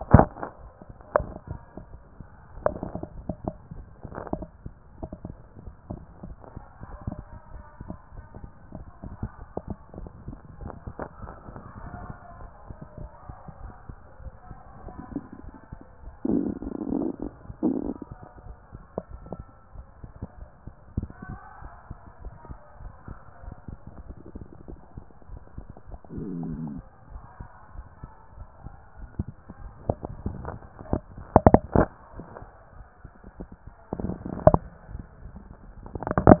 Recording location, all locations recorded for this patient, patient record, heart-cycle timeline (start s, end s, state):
tricuspid valve (TV)
aortic valve (AV)+pulmonary valve (PV)+tricuspid valve (TV)+mitral valve (MV)
#Age: nan
#Sex: Female
#Height: nan
#Weight: nan
#Pregnancy status: True
#Murmur: Absent
#Murmur locations: nan
#Most audible location: nan
#Systolic murmur timing: nan
#Systolic murmur shape: nan
#Systolic murmur grading: nan
#Systolic murmur pitch: nan
#Systolic murmur quality: nan
#Diastolic murmur timing: nan
#Diastolic murmur shape: nan
#Diastolic murmur grading: nan
#Diastolic murmur pitch: nan
#Diastolic murmur quality: nan
#Outcome: Abnormal
#Campaign: 2014 screening campaign
0.00	11.72	unannotated
11.72	11.82	diastole
11.82	11.92	S1
11.92	12.08	systole
12.08	12.18	S2
12.18	12.38	diastole
12.38	12.50	S1
12.50	12.66	systole
12.66	12.76	S2
12.76	12.98	diastole
12.98	13.10	S1
13.10	13.28	systole
13.28	13.36	S2
13.36	13.62	diastole
13.62	13.72	S1
13.72	13.90	systole
13.90	13.98	S2
13.98	14.22	diastole
14.22	14.32	S1
14.32	14.48	systole
14.48	14.58	S2
14.58	14.86	diastole
14.86	36.40	unannotated